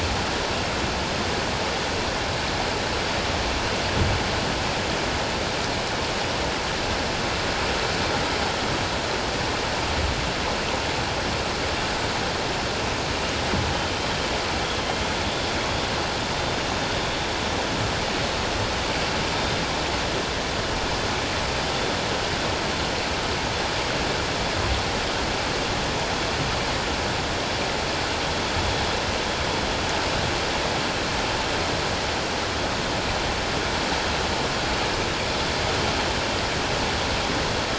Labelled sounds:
15.2	15.5	vessel noise, 3.5 to 3.6 kHz

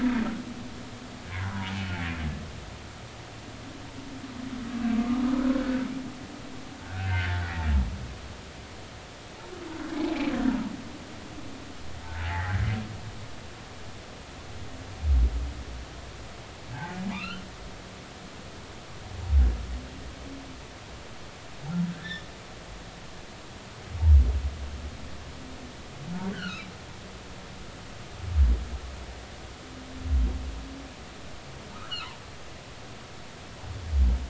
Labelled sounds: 5.3	5.8	humpback whale, 1.2 to 1.6 kHz
6.9	7.7	humpback whale, 1.4 to 2.0 kHz
12.2	12.7	humpback whale, 0.80 to 1.7 kHz
17.1	17.4	humpback whale, 1.1 to 3.1 kHz
21.9	22.3	humpback whale, 1.5 to 4.0 kHz
26.3	26.7	humpback whale, 1.2 to 3.2 kHz
31.7	32.1	humpback whale, 1.2 to 3.2 kHz

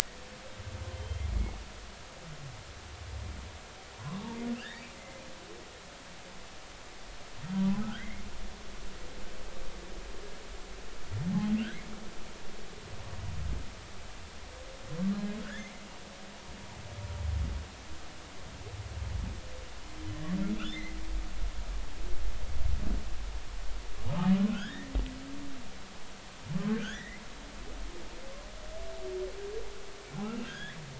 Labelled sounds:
0.9	1.2	humpback whale, 3.1 to 3.2 kHz
3.9	5.2	humpback whale, 0.90 to 2.1 kHz
7.5	8.2	humpback whale, 0.93 to 2.2 kHz
15.1	15.7	humpback whale, 1.3 to 1.9 kHz
20.5	21.0	humpback whale, 1.6 to 3.7 kHz
24.5	24.9	humpback whale, 1.3 to 3.8 kHz
26.7	27.2	humpback whale, 1.4 to 3.6 kHz
30.5	30.8	humpback whale, 1.4 to 3.6 kHz

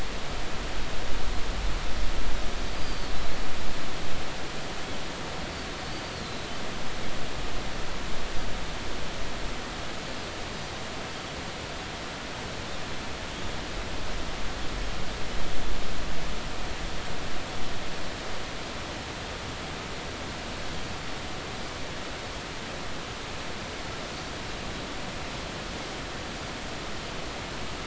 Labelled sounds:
2.7	3.1	Pacific white-sided dolphin, 4.4 to 4.9 kHz
6.1	6.5	Pacific white-sided dolphin, 3.8 to 4.5 kHz

